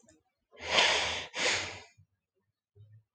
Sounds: Sigh